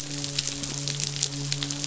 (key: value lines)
label: biophony, midshipman
recorder: SoundTrap 500